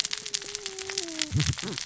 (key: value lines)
label: biophony, cascading saw
recorder: SoundTrap 600 or HydroMoth